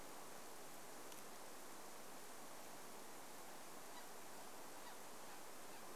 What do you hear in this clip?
unidentified sound